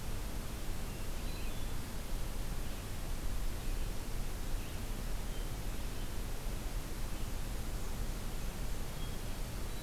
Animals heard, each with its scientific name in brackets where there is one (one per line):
Hermit Thrush (Catharus guttatus)
Red-eyed Vireo (Vireo olivaceus)
Black-and-white Warbler (Mniotilta varia)